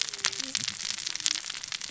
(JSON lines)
{"label": "biophony, cascading saw", "recorder": "SoundTrap 600 or HydroMoth"}